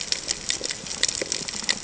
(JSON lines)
{"label": "ambient", "recorder": "HydroMoth"}